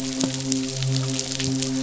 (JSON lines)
{"label": "biophony, midshipman", "recorder": "SoundTrap 500"}